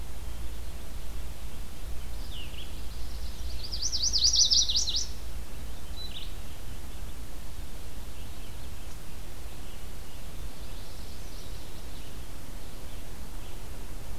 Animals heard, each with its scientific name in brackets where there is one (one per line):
Chestnut-sided Warbler (Setophaga pensylvanica)
Northern Parula (Setophaga americana)
Red-eyed Vireo (Vireo olivaceus)
Magnolia Warbler (Setophaga magnolia)